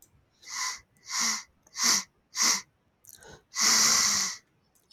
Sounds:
Sniff